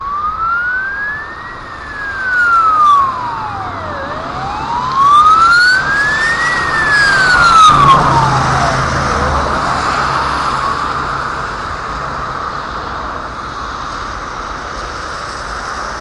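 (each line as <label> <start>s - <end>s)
An ambulance drives past with a very loud siren and then drives away. 0.0s - 10.9s
Traffic noise on a road. 0.0s - 16.0s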